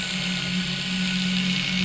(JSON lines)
{"label": "anthrophony, boat engine", "recorder": "SoundTrap 500"}